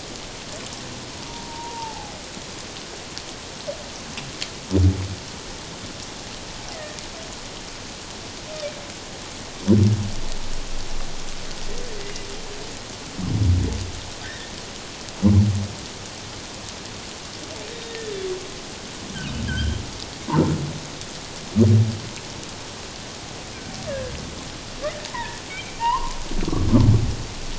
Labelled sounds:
1.1	2.1	humpback whale, 0.78 to 1.0 kHz
6.7	7.0	humpback whale, 1.8 to 2.1 kHz
14.2	14.5	humpback whale, 1.5 to 2.0 kHz
17.8	18.1	humpback whale, 1.7 to 1.9 kHz
19.5	19.8	humpback whale, 1.4 to 3.3 kHz
24.8	26.2	humpback whale, 0.81 to 3.0 kHz

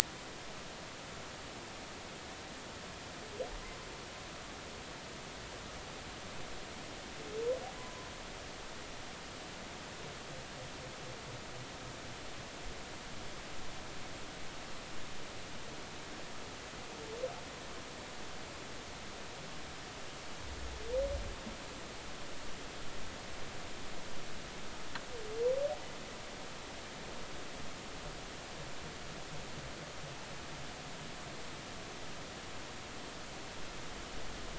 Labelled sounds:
7.8	8.1	humpback whale, 0.96 to 1.1 kHz

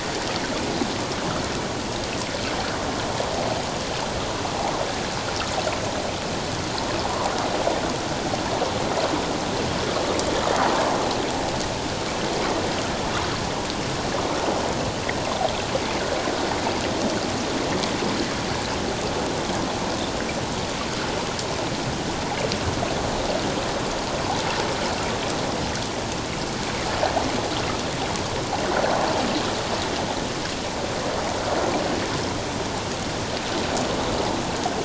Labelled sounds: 7.0	7.3	water noise, 0.78 to 1.2 kHz

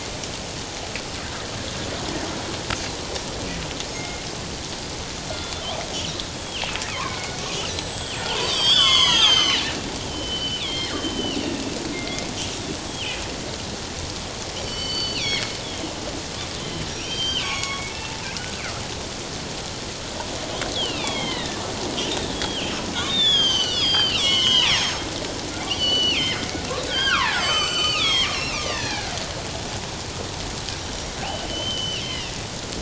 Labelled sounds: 3.9	4.2	killer whale, northern resident, G clan, 2.0 to 2.2 kHz
5.3	5.6	killer whale, northern resident, G clan, 1.3 to 3.5 kHz
6.1	7.3	killer whale, northern resident, G clan, 0.94 to 4.1 kHz
7.6	11.4	killer whale, northern resident, G clan, 0.81 to 8.0 kHz
11.9	12.3	killer whale, northern resident, G clan, 2.0 to 2.2 kHz
12.9	13.2	killer whale, northern resident, G clan, 2.4 to 3.4 kHz
14.6	15.9	killer whale, northern resident, G clan, 1.9 to 5.6 kHz
16.9	17.9	killer whale, northern resident, G clan, 1.0 to 6.7 kHz
20.7	25.0	killer whale, northern resident, G clan, 0.84 to 7.9 kHz
25.7	29.1	killer whale, northern resident, G clan, 0.78 to 7.8 kHz
30.7	32.3	killer whale, northern resident, G clan, 1.9 to 6.2 kHz

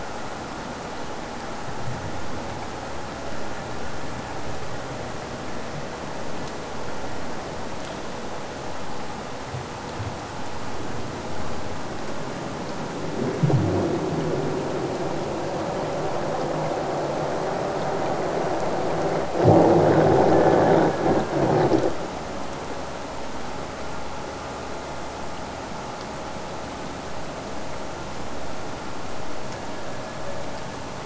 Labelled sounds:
20.3	21.8	killer whale, Bigg's (transient), AT1 transient, 1.3 to 3.0 kHz
29.4	30.9	killer whale, Bigg's (transient), AT1 transient, 1.5 to 2.9 kHz

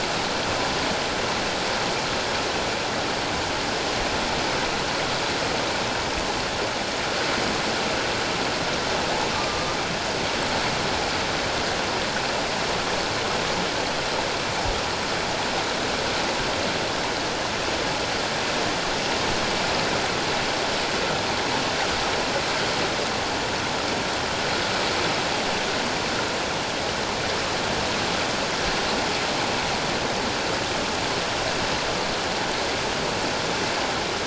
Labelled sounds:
9.3	9.8	humpback whale, 1.1 to 1.2 kHz

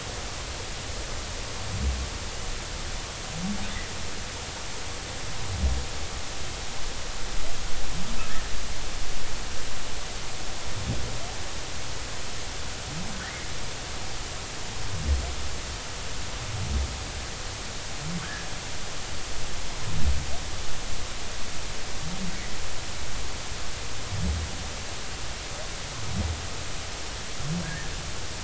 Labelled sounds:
18.2	18.5	humpback whale, 1.5 to 1.9 kHz
27.6	27.9	humpback whale, 1.5 to 1.9 kHz

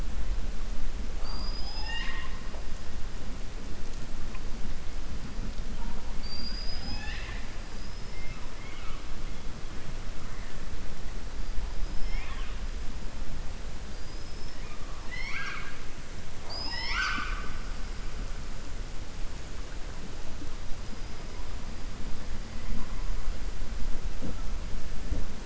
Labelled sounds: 7.7	8.2	killer whale, southern resident, 4.9 to 5.4 kHz
11.8	12.6	killer whale, southern resident, 0.81 to 5.4 kHz
15.0	15.8	killer whale, southern resident, 1.1 to 6.1 kHz

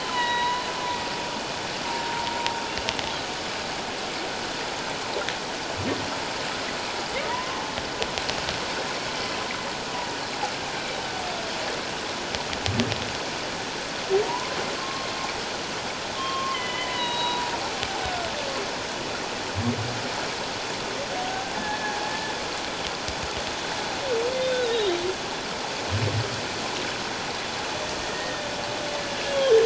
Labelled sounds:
7.3	7.6	humpback whale, 0.91 to 1.1 kHz
14.2	14.5	humpback whale, 0.84 to 1.1 kHz
14.8	15.1	humpback whale, 1.0 to 1.1 kHz
16.2	17.5	humpback whale, 0.84 to 4.0 kHz
21.2	22.1	humpback whale, 0.78 to 1.8 kHz
24.6	25.0	humpback whale, 3.5 to 4.1 kHz
28.1	28.5	humpback whale, 1.7 to 2.0 kHz

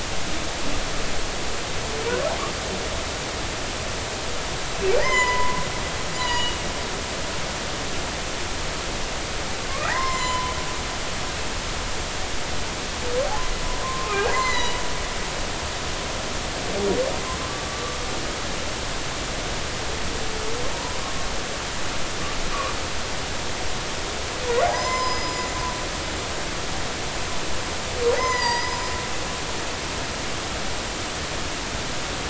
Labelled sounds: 5.0	5.7	humpback whale, 0.83 to 7.1 kHz
6.2	6.6	humpback whale, 0.90 to 3.1 kHz
9.8	10.5	humpback whale, 0.83 to 7.3 kHz
13.8	14.8	humpback whale, 0.80 to 7.3 kHz
17.7	18.0	humpback whale, 1.1 to 1.2 kHz
20.7	21.0	humpback whale, 0.83 to 1.0 kHz
24.7	25.4	humpback whale, 0.93 to 7.2 kHz
28.1	29.0	humpback whale, 0.90 to 7.2 kHz

